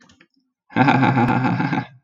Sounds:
Laughter